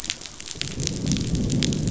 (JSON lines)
{"label": "biophony, growl", "recorder": "SoundTrap 500"}